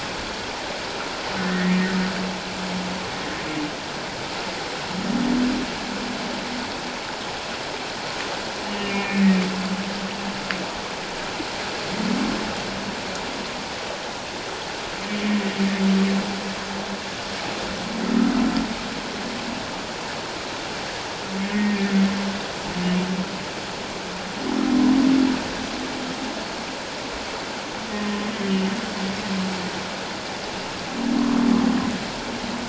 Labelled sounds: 1.4	1.8	humpback whale, 1.7 to 2.0 kHz
8.6	9.3	humpback whale, 2.1 to 2.9 kHz
21.4	21.9	humpback whale, 1.7 to 1.9 kHz
28.3	28.6	humpback whale, 3.0 to 3.2 kHz

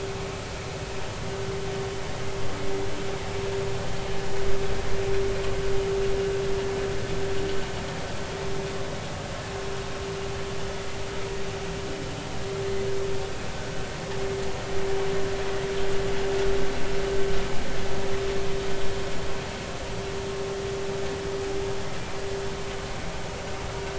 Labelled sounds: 23.7	23.9	humpback whale, 1.3 to 1.6 kHz

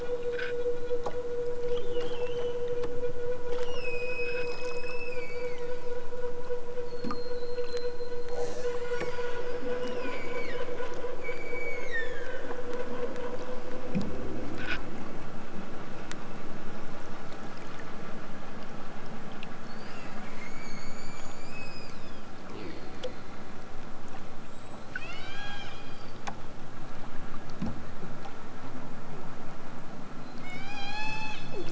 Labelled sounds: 3.6	6.0	killer whale, southern Alaska resident, 1.3 to 8.0 kHz
9.8	10.7	killer whale, southern Alaska resident, 1.1 to 8.0 kHz
11.2	12.5	killer whale, southern Alaska resident, 0.97 to 8.0 kHz
20.2	22.4	killer whale, southern Alaska resident, 1.2 to 8.0 kHz
24.4	26.3	killer whale, southern Alaska resident, 0.60 to 8.0 kHz
30.2	31.7	killer whale, southern Alaska resident, 0.46 to 8.0 kHz

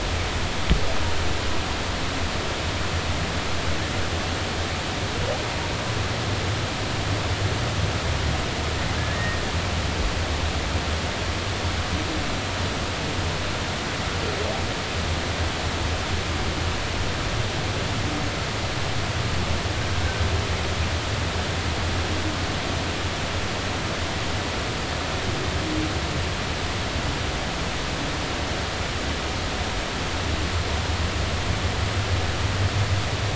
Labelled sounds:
9.1	9.4	humpback whale, 1.8 to 2.0 kHz

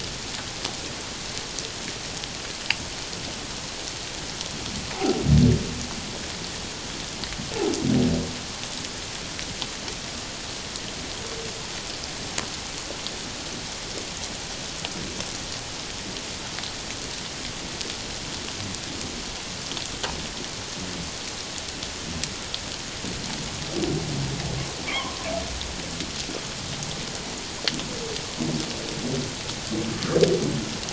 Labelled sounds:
4.9	5.2	humpback whale, 0.78 to 0.97 kHz
24.9	25.2	humpback whale, 0.97 to 1.3 kHz

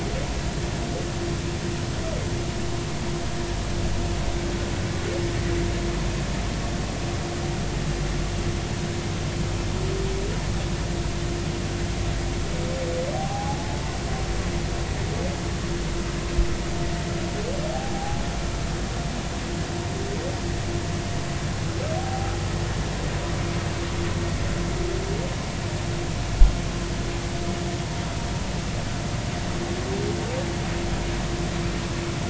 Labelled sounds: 13.1	13.8	humpback whale, 0.80 to 0.90 kHz
17.7	18.2	humpback whale, 0.80 to 0.86 kHz
21.9	22.3	humpback whale, 0.80 to 0.83 kHz

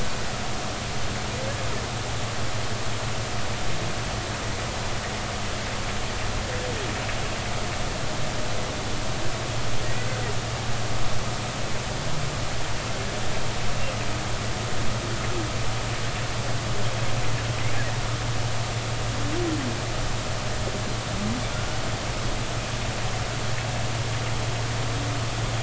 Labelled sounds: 9.8	10.1	humpback whale, 1.8 to 2.0 kHz

